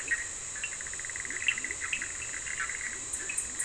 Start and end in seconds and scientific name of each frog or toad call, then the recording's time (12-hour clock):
0.0	3.6	Boana bischoffi
0.2	3.6	Sphaenorhynchus surdus
1.2	3.6	Leptodactylus latrans
11:30pm